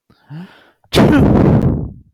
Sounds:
Sneeze